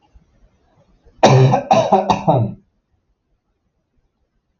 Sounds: Cough